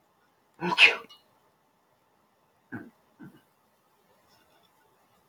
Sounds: Sneeze